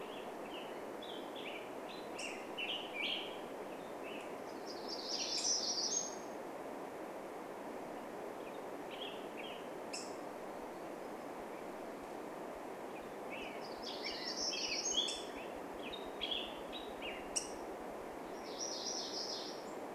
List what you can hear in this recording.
Black-headed Grosbeak song, Black-headed Grosbeak call, Hermit Warbler song, MacGillivray's Warbler song